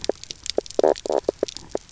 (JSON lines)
{"label": "biophony, knock croak", "recorder": "SoundTrap 300"}